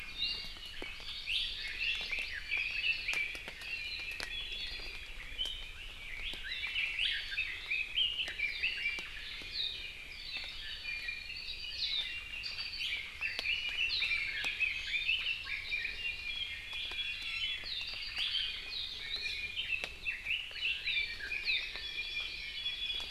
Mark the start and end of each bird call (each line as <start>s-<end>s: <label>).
0.0s-0.6s: Iiwi (Drepanis coccinea)
1.2s-1.4s: Iiwi (Drepanis coccinea)
1.4s-2.4s: Hawaii Amakihi (Chlorodrepanis virens)
1.6s-3.3s: Red-billed Leiothrix (Leiothrix lutea)
3.5s-5.1s: Iiwi (Drepanis coccinea)
6.0s-9.0s: Red-billed Leiothrix (Leiothrix lutea)
10.6s-11.4s: Iiwi (Drepanis coccinea)
11.4s-16.0s: Red-billed Leiothrix (Leiothrix lutea)
14.8s-16.1s: Hawaii Amakihi (Chlorodrepanis virens)
17.0s-17.7s: Iiwi (Drepanis coccinea)
18.1s-18.5s: Iiwi (Drepanis coccinea)
19.0s-21.7s: Red-billed Leiothrix (Leiothrix lutea)
21.1s-22.8s: Hawaii Amakihi (Chlorodrepanis virens)
21.7s-23.1s: Iiwi (Drepanis coccinea)